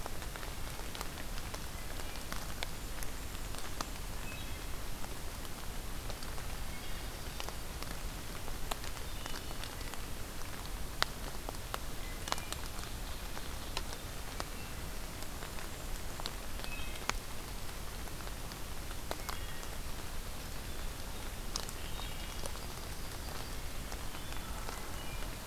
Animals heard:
Yellow-rumped Warbler (Setophaga coronata), Wood Thrush (Hylocichla mustelina)

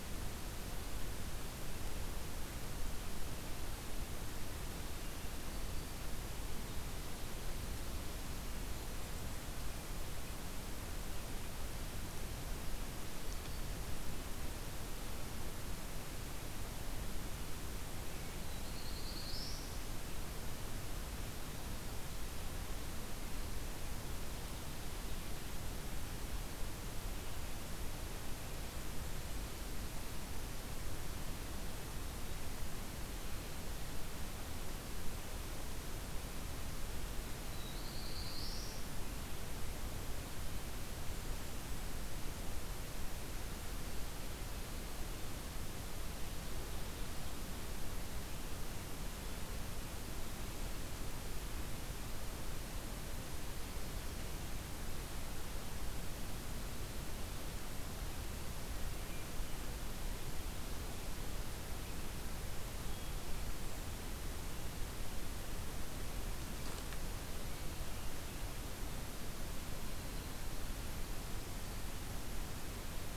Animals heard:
Black-throated Blue Warbler (Setophaga caerulescens)

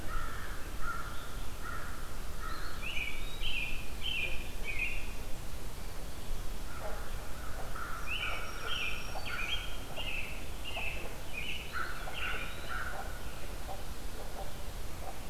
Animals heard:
Eastern Wood-Pewee (Contopus virens), Black-throated Green Warbler (Setophaga virens), American Robin (Turdus migratorius), American Crow (Corvus brachyrhynchos)

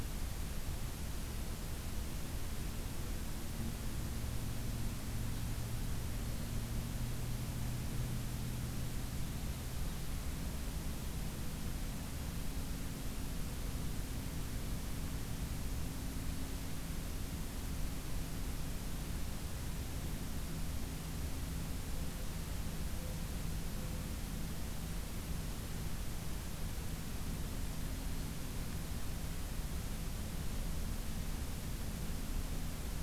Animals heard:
Mourning Dove (Zenaida macroura), Black-throated Green Warbler (Setophaga virens)

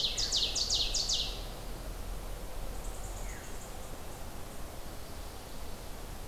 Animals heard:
unidentified call, Veery (Catharus fuscescens), Ovenbird (Seiurus aurocapilla)

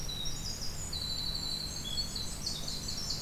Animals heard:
Winter Wren (Troglodytes hiemalis), Golden-crowned Kinglet (Regulus satrapa)

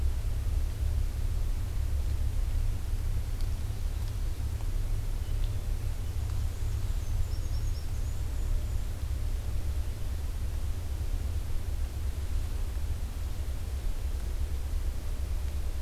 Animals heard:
Black-and-white Warbler (Mniotilta varia)

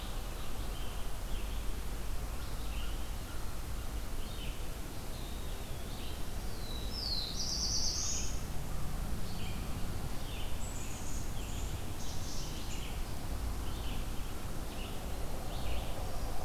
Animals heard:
Red-eyed Vireo (Vireo olivaceus), Black-throated Blue Warbler (Setophaga caerulescens), Eastern Wood-Pewee (Contopus virens), American Crow (Corvus brachyrhynchos), Black-capped Chickadee (Poecile atricapillus)

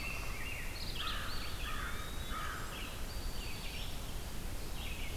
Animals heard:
American Crow (Corvus brachyrhynchos), Eastern Wood-Pewee (Contopus virens), Song Sparrow (Melospiza melodia), Rose-breasted Grosbeak (Pheucticus ludovicianus), Red-eyed Vireo (Vireo olivaceus)

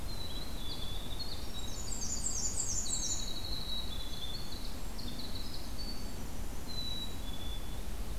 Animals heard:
Black-capped Chickadee (Poecile atricapillus), Winter Wren (Troglodytes hiemalis), Black-and-white Warbler (Mniotilta varia)

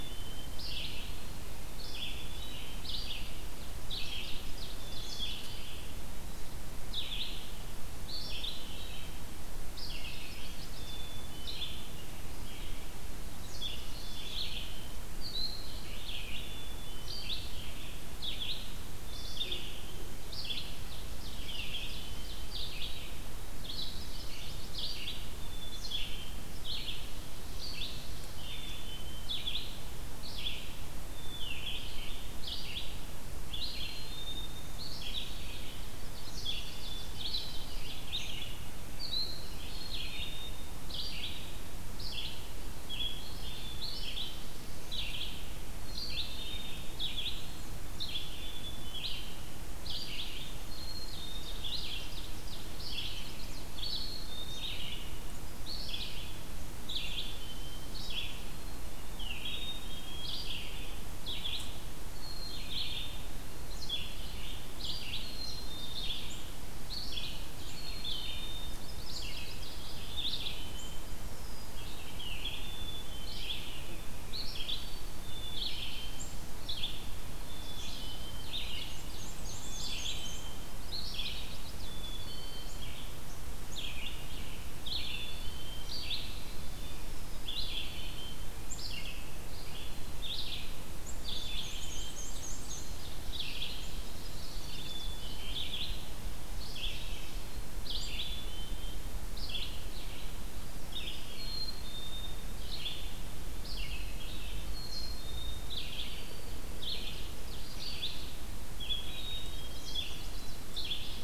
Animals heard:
Black-throated Blue Warbler (Setophaga caerulescens), Chestnut-sided Warbler (Setophaga pensylvanica), Ovenbird (Seiurus aurocapilla), Black-capped Chickadee (Poecile atricapillus), Red-eyed Vireo (Vireo olivaceus), Black-and-white Warbler (Mniotilta varia)

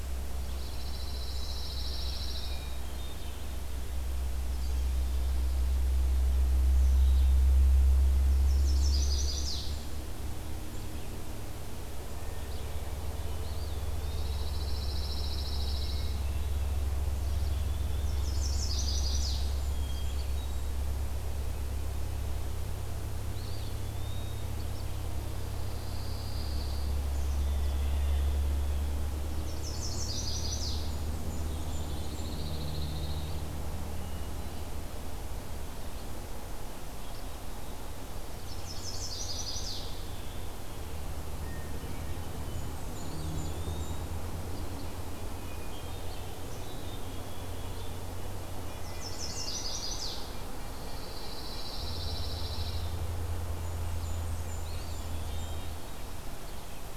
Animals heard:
Black-capped Chickadee (Poecile atricapillus), Dark-eyed Junco (Junco hyemalis), Blackburnian Warbler (Setophaga fusca), Red-breasted Nuthatch (Sitta canadensis), Chestnut-sided Warbler (Setophaga pensylvanica), Red-eyed Vireo (Vireo olivaceus), Hermit Thrush (Catharus guttatus), Eastern Wood-Pewee (Contopus virens), Pine Warbler (Setophaga pinus)

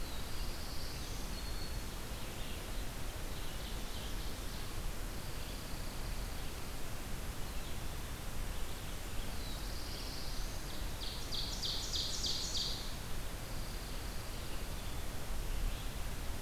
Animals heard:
Black-throated Green Warbler (Setophaga virens), Ovenbird (Seiurus aurocapilla), Pine Warbler (Setophaga pinus), Black-throated Blue Warbler (Setophaga caerulescens), Red-eyed Vireo (Vireo olivaceus)

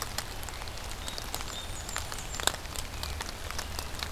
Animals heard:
American Robin (Turdus migratorius), Blackburnian Warbler (Setophaga fusca)

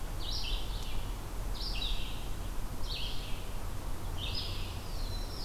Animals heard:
Red-eyed Vireo (Vireo olivaceus), Black-throated Green Warbler (Setophaga virens), Black-throated Blue Warbler (Setophaga caerulescens)

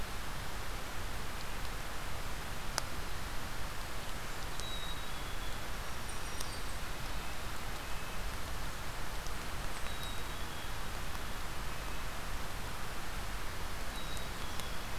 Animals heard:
Red-breasted Nuthatch (Sitta canadensis), Black-throated Green Warbler (Setophaga virens), Eastern Chipmunk (Tamias striatus), Black-capped Chickadee (Poecile atricapillus)

